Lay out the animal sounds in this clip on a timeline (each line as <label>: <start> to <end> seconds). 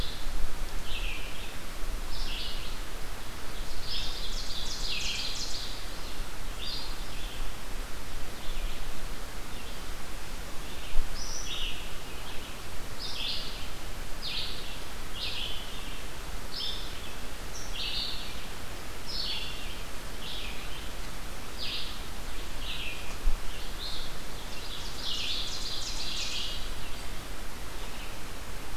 Red-eyed Vireo (Vireo olivaceus): 0.0 to 24.1 seconds
Ovenbird (Seiurus aurocapilla): 3.6 to 5.9 seconds
Ovenbird (Seiurus aurocapilla): 24.3 to 26.8 seconds